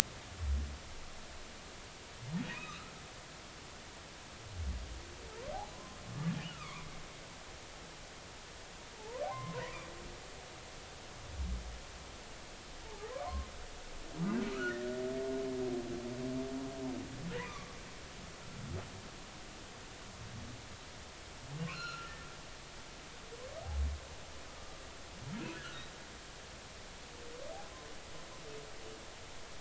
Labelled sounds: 2.5	2.9	humpback whale, 1.1 to 2.6 kHz
5.7	6.9	humpback whale, 0.96 to 2.5 kHz
9.0	9.7	humpback whale, 0.80 to 1.1 kHz
12.8	13.5	humpback whale, 0.80 to 1.2 kHz
14.5	14.8	humpback whale, 1.2 to 1.5 kHz
17.5	17.7	humpback whale, 0.99 to 1.2 kHz
21.6	22.1	humpback whale, 0.99 to 4.3 kHz
25.5	25.8	humpback whale, 1.3 to 1.5 kHz

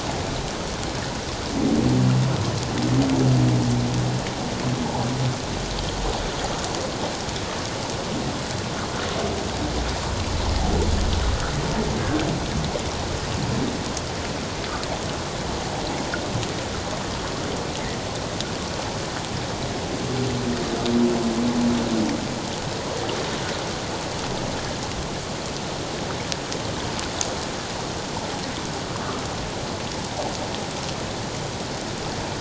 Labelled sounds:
11.9	12.3	humpback whale, 1.5 to 1.7 kHz

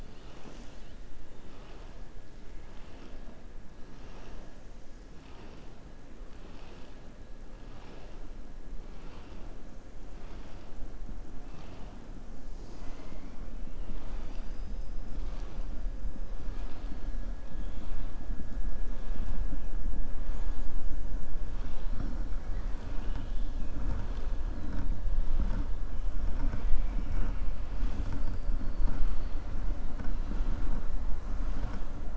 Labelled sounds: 22.4	23.5	killer whale, southern resident, 0.93 to 5.0 kHz

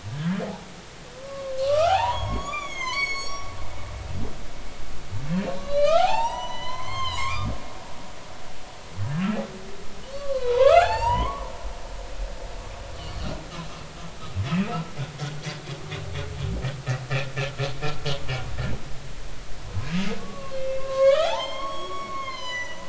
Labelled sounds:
0.1	0.4	humpback whale, 1.5 to 1.7 kHz
1.1	3.5	humpback whale, 0.80 to 7.9 kHz
5.3	7.5	humpback whale, 0.80 to 8.0 kHz
10.1	11.5	humpback whale, 0.80 to 7.6 kHz
14.5	14.7	humpback whale, 2.4 to 2.7 kHz
19.7	22.8	humpback whale, 0.80 to 8.0 kHz

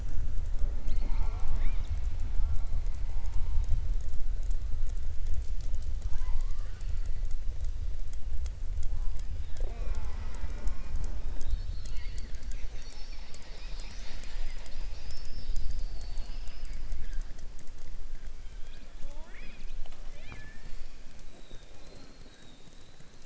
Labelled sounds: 0.5	2.1	killer whale, southern resident, 0.22 to 5.3 kHz

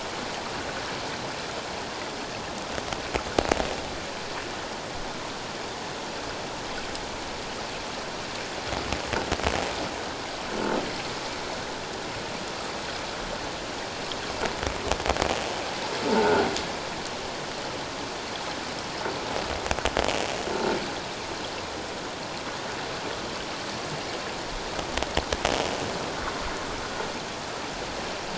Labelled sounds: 16.1	16.5	croaking sound likely from a nearby submerged object, 1.3 to 1.6 kHz

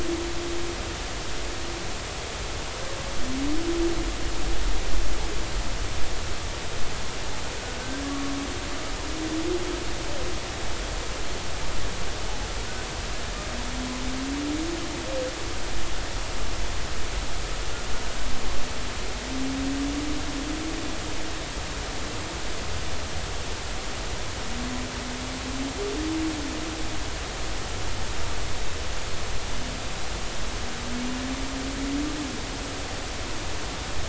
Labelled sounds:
7.8	8.3	humpback whale, 1.1 to 1.7 kHz

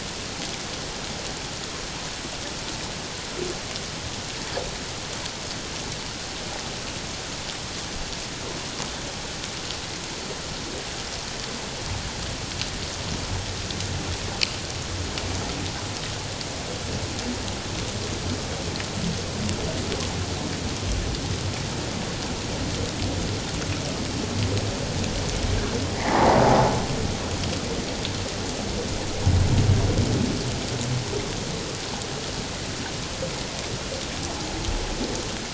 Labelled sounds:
25.9	26.4	humpback whale, 0.78 to 2.2 kHz

